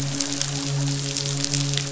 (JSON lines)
{"label": "biophony, midshipman", "recorder": "SoundTrap 500"}